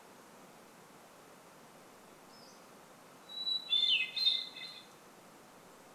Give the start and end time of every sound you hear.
2s-4s: Pacific-slope Flycatcher call
2s-6s: Hermit Thrush song

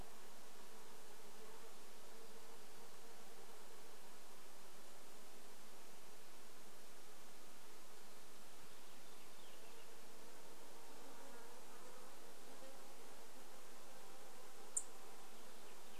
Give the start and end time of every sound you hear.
0s-16s: insect buzz
8s-10s: Purple Finch song
14s-16s: Dark-eyed Junco call
14s-16s: Purple Finch song

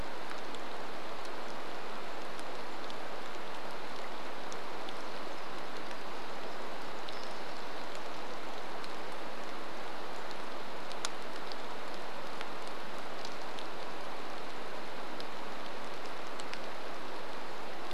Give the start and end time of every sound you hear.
0s-18s: rain

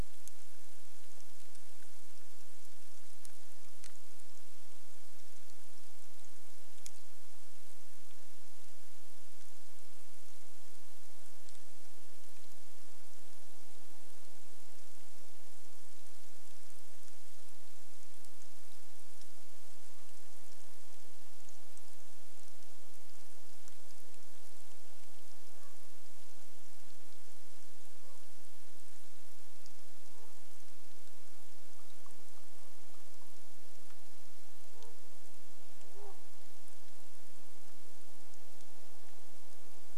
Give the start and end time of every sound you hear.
0s-40s: rain
24s-26s: Common Raven call
28s-32s: Common Raven call
32s-34s: unidentified sound
34s-38s: Common Raven call

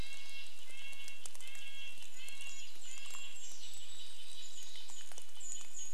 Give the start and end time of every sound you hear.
0s-6s: Red-breasted Nuthatch song
0s-6s: rain
2s-6s: Golden-crowned Kinglet song
4s-6s: Mountain Chickadee call

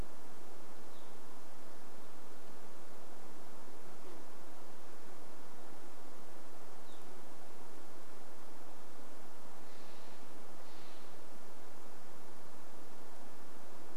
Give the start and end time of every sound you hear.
0s-2s: Evening Grosbeak call
4s-6s: insect buzz
6s-8s: Band-tailed Pigeon call
6s-8s: Evening Grosbeak call
8s-12s: Steller's Jay call

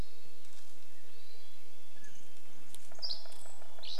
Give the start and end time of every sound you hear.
0s-2s: Golden-crowned Kinglet call
0s-4s: Mountain Quail call
0s-4s: Red-breasted Nuthatch song
2s-4s: Dark-eyed Junco call
2s-4s: Dusky Flycatcher song
2s-4s: woodpecker drumming

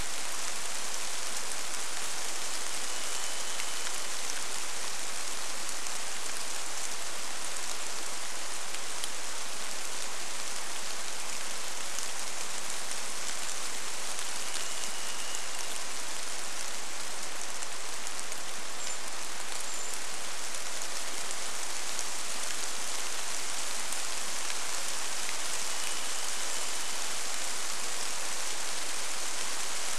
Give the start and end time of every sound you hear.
0s-30s: rain
2s-4s: Varied Thrush song
14s-16s: Varied Thrush song
18s-20s: Brown Creeper call
24s-28s: Varied Thrush song

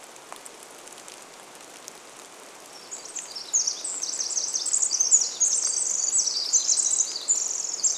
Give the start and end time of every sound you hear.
0s-8s: rain
2s-8s: Pacific Wren song

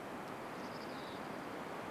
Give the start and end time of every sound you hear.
0s-2s: Dark-eyed Junco song
0s-2s: Mountain Chickadee call

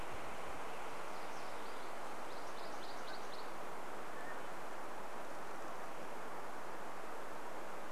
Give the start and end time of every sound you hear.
0s-4s: MacGillivray's Warbler song
4s-6s: Mountain Quail call

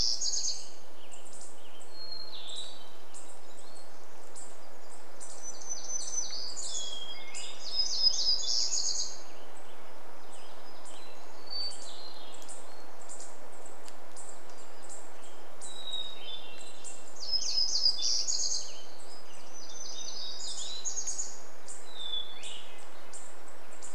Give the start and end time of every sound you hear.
0s-2s: Western Tanager song
0s-2s: warbler song
0s-4s: Hermit Thrush song
0s-24s: unidentified bird chip note
4s-10s: warbler song
8s-12s: Western Tanager song
10s-18s: Hermit Thrush song
16s-20s: Western Tanager song
16s-22s: warbler song
20s-24s: Hermit Thrush song
22s-24s: Red-breasted Nuthatch song

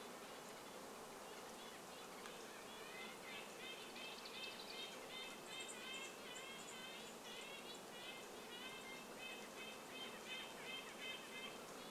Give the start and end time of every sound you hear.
0s-6s: Red-breasted Nuthatch call
0s-12s: Red-breasted Nuthatch song
4s-10s: Dark-eyed Junco call
4s-10s: insect buzz
8s-12s: Red-breasted Nuthatch call

